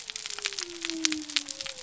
{"label": "biophony", "recorder": "SoundTrap 300"}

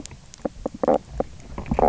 {"label": "biophony, knock croak", "recorder": "SoundTrap 300"}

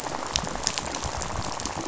{"label": "biophony, rattle", "recorder": "SoundTrap 500"}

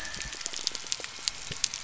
{"label": "biophony", "recorder": "SoundTrap 300"}
{"label": "anthrophony, boat engine", "recorder": "SoundTrap 300"}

